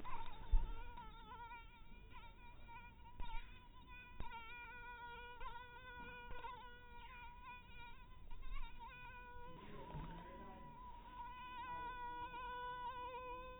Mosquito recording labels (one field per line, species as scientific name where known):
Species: mosquito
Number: one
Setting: cup